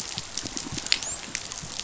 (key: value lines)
label: biophony, dolphin
recorder: SoundTrap 500